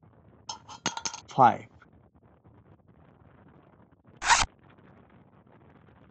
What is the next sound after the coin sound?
speech